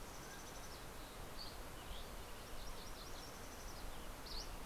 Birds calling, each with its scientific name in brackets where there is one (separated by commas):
Mountain Chickadee (Poecile gambeli), Dusky Flycatcher (Empidonax oberholseri), Mountain Quail (Oreortyx pictus), MacGillivray's Warbler (Geothlypis tolmiei)